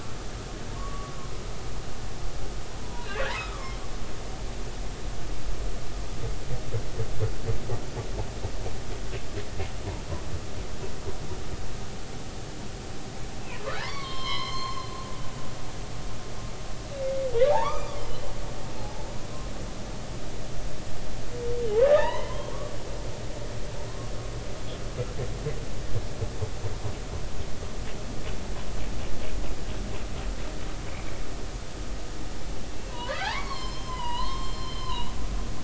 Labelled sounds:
0.8	1.4	humpback whale, 0.99 to 1.2 kHz
2.8	3.8	humpback whale, 0.90 to 4.0 kHz
13.6	14.9	humpback whale, 0.80 to 5.5 kHz
17.5	19.1	humpback whale, 0.80 to 5.0 kHz
21.8	22.5	humpback whale, 0.83 to 4.2 kHz
32.9	35.1	humpback whale, 0.80 to 7.5 kHz

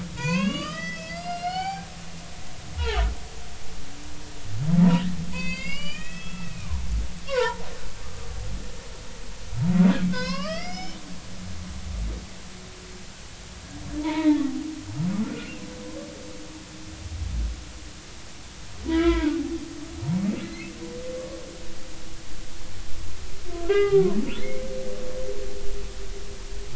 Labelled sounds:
0.2	1.9	humpback whale, 0.80 to 7.0 kHz
2.8	3.0	humpback whale, 2.9 to 3.4 kHz
4.8	6.9	humpback whale, 0.80 to 7.2 kHz
7.3	8.3	humpback whale, 0.83 to 1.7 kHz
10.1	11.0	humpback whale, 0.93 to 6.1 kHz
14.0	14.4	humpback whale, 0.83 to 2.4 kHz
15.2	15.6	humpback whale, 1.3 to 1.5 kHz
18.9	19.4	humpback whale, 0.86 to 3.5 kHz
20.4	20.7	humpback whale, 2.0 to 2.2 kHz
23.7	24.6	humpback whale, 0.80 to 3.3 kHz

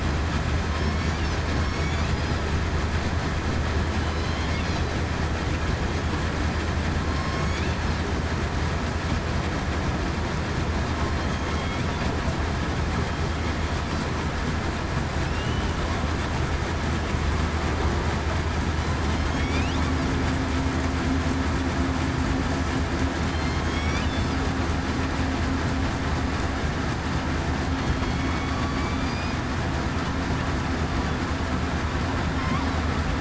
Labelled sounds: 4.2	4.5	killer whale, southern resident, 3.0 to 3.2 kHz
7.1	7.5	killer whale, southern resident, 1.0 to 1.1 kHz
15.3	15.6	killer whale, southern resident, 2.7 to 3.0 kHz
19.4	19.7	killer whale, southern resident, 2.2 to 3.0 kHz
23.3	23.7	killer whale, southern resident, 4.1 to 4.3 kHz
28.0	28.6	killer whale, southern resident, 2.2 to 3.4 kHz

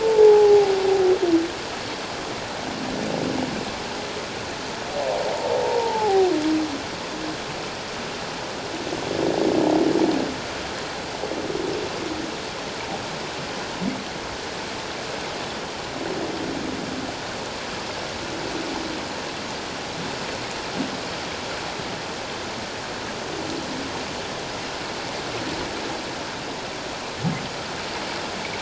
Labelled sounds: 0.0	0.8	humpback whale, 0.78 to 0.94 kHz
5.3	6.3	humpback whale, 0.78 to 1.0 kHz

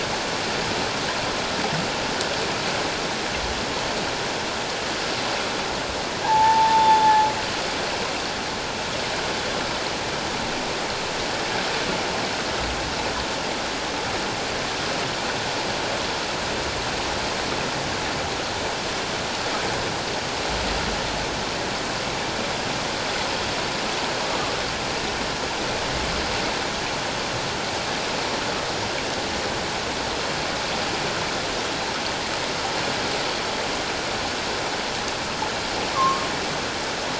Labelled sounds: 6.2	7.3	humpback whale, 0.78 to 3.6 kHz
35.9	36.2	humpback whale, 0.97 to 1.2 kHz

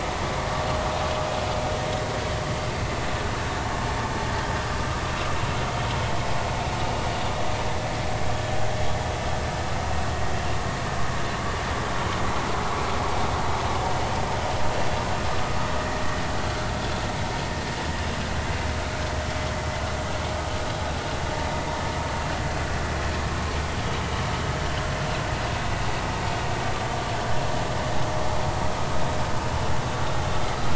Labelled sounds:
14.7	15.0	vessel noise, 2.6 to 2.8 kHz
15.8	16.0	vessel noise, 1.8 to 2.0 kHz

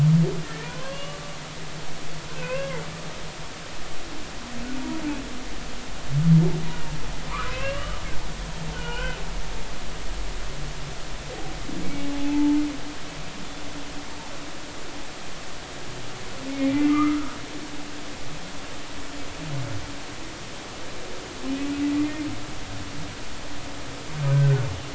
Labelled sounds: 0.4	1.2	humpback whale, 0.93 to 3.5 kHz
2.3	2.8	humpback whale, 0.90 to 2.8 kHz
7.5	9.2	humpback whale, 0.80 to 3.2 kHz
11.8	12.6	humpback whale, 0.80 to 2.3 kHz
16.8	17.3	humpback whale, 1.1 to 2.1 kHz
24.3	24.6	humpback whale, 1.5 to 1.6 kHz

